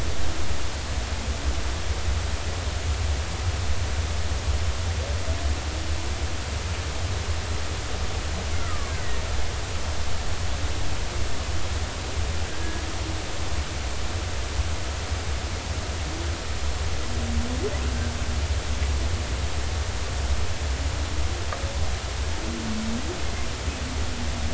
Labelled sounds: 8.6	8.9	killer whale, Bigg's (transient), 1.0 to 1.4 kHz

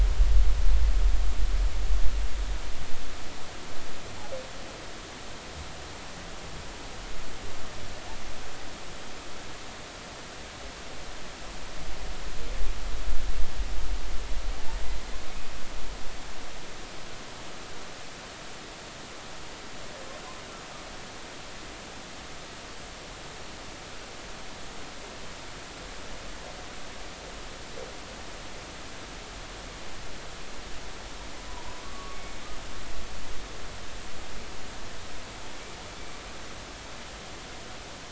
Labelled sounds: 31.5	32.2	humpback whale, 0.90 to 1.2 kHz

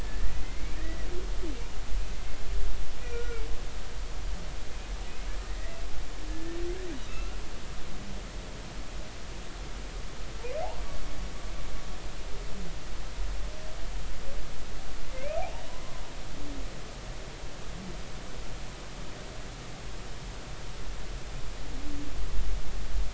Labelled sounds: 0.0	1.1	humpback whale, 1.7 to 2.4 kHz
3.1	3.4	humpback whale, 1.3 to 1.5 kHz
5.5	5.8	humpback whale, 1.8 to 2.1 kHz
6.3	7.4	humpback whale, 1.2 to 2.8 kHz
15.1	15.5	humpback whale, 2.0 to 2.6 kHz

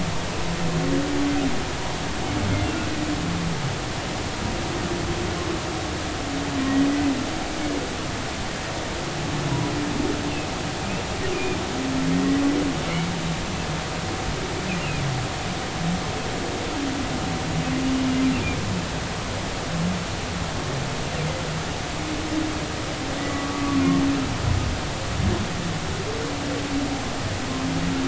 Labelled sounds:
11.3	11.6	humpback whale, 2.3 to 2.6 kHz
18.0	18.2	humpback whale, 2.8 to 2.9 kHz
23.2	23.8	humpback whale, 1.1 to 2.0 kHz

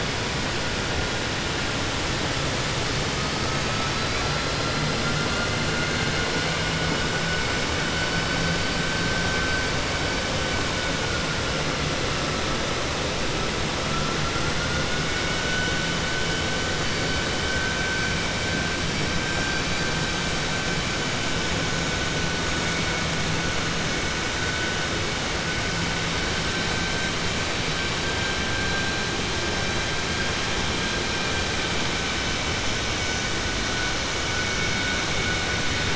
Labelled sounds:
15.0	15.8	killer whale, 1.4 to 3.0 kHz

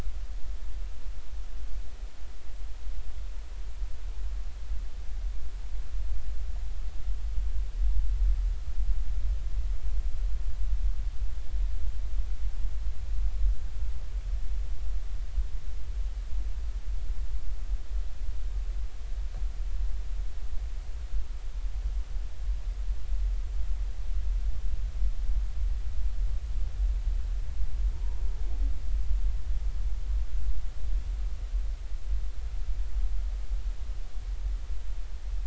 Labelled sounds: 27.9	28.2	humpback whale, 0.83 to 1.1 kHz

